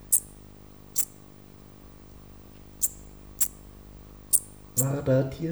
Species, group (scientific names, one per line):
Eupholidoptera megastyla
Orthoptera